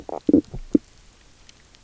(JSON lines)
{"label": "biophony, knock croak", "recorder": "SoundTrap 300"}